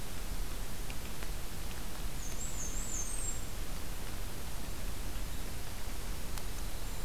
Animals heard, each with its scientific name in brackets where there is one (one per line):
Black-and-white Warbler (Mniotilta varia)